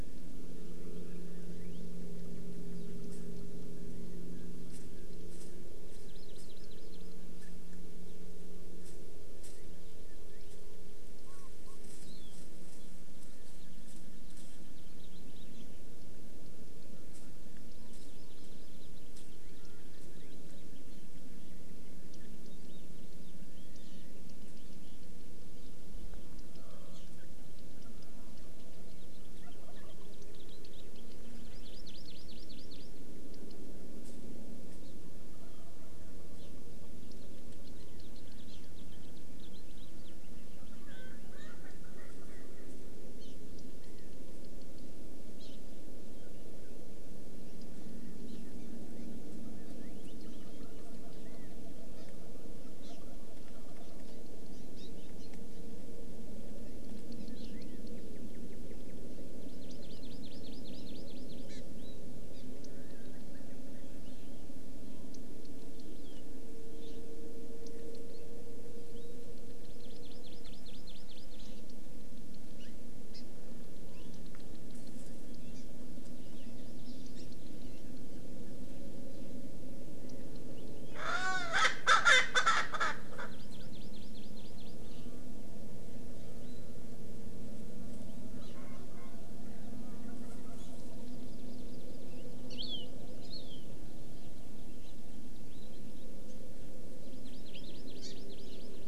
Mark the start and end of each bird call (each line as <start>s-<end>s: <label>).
5.9s-7.2s: Hawaii Amakihi (Chlorodrepanis virens)
12.1s-12.3s: Warbling White-eye (Zosterops japonicus)
17.9s-19.0s: Hawaii Amakihi (Chlorodrepanis virens)
23.8s-24.1s: Hawaii Amakihi (Chlorodrepanis virens)
26.9s-27.1s: Hawaii Amakihi (Chlorodrepanis virens)
29.4s-30.1s: Wild Turkey (Meleagris gallopavo)
31.5s-32.9s: Hawaii Amakihi (Chlorodrepanis virens)
37.6s-40.1s: House Finch (Haemorhous mexicanus)
40.8s-42.8s: Erckel's Francolin (Pternistis erckelii)
43.2s-43.4s: Hawaii Amakihi (Chlorodrepanis virens)
45.4s-45.6s: Hawaii Amakihi (Chlorodrepanis virens)
48.3s-48.4s: Hawaii Amakihi (Chlorodrepanis virens)
52.0s-52.1s: Hawaii Amakihi (Chlorodrepanis virens)
54.5s-54.9s: Hawaii Amakihi (Chlorodrepanis virens)
55.2s-55.3s: Hawaii Amakihi (Chlorodrepanis virens)
57.4s-57.6s: Hawaii Amakihi (Chlorodrepanis virens)
59.4s-61.6s: Hawaii Amakihi (Chlorodrepanis virens)
62.3s-62.4s: Hawaii Amakihi (Chlorodrepanis virens)
69.7s-71.6s: Hawaii Amakihi (Chlorodrepanis virens)
72.6s-72.8s: Hawaii Amakihi (Chlorodrepanis virens)
75.6s-75.7s: Hawaii Amakihi (Chlorodrepanis virens)
81.0s-83.3s: Erckel's Francolin (Pternistis erckelii)
83.3s-84.8s: Hawaii Amakihi (Chlorodrepanis virens)
88.4s-88.6s: Hawaii Amakihi (Chlorodrepanis virens)
90.6s-90.7s: Hawaii Amakihi (Chlorodrepanis virens)
91.1s-92.6s: Hawaii Amakihi (Chlorodrepanis virens)
92.6s-92.9s: Warbling White-eye (Zosterops japonicus)
93.2s-93.7s: Warbling White-eye (Zosterops japonicus)
97.0s-98.9s: Hawaii Amakihi (Chlorodrepanis virens)